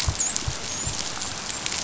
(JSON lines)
{"label": "biophony, dolphin", "recorder": "SoundTrap 500"}